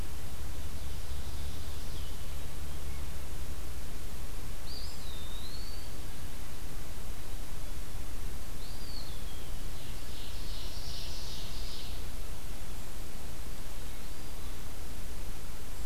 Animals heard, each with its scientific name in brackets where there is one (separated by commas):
Ovenbird (Seiurus aurocapilla), Blue-headed Vireo (Vireo solitarius), Eastern Wood-Pewee (Contopus virens)